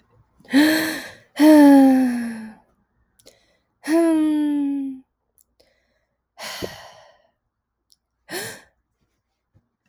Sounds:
Sigh